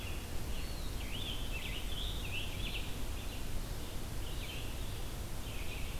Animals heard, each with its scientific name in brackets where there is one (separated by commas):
Scarlet Tanager (Piranga olivacea), Red-eyed Vireo (Vireo olivaceus)